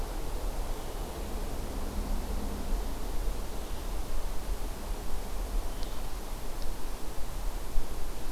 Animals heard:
forest ambience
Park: Acadia National Park